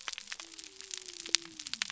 {"label": "biophony", "recorder": "SoundTrap 300"}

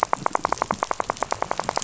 {"label": "biophony, rattle", "recorder": "SoundTrap 500"}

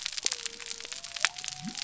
{"label": "biophony", "recorder": "SoundTrap 300"}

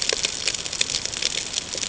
{"label": "ambient", "recorder": "HydroMoth"}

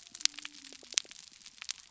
{"label": "biophony", "recorder": "SoundTrap 300"}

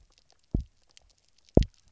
{"label": "biophony, double pulse", "recorder": "SoundTrap 300"}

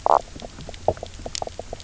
{"label": "biophony, knock croak", "recorder": "SoundTrap 300"}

